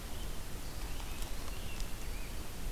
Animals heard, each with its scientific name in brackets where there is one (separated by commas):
Scarlet Tanager (Piranga olivacea)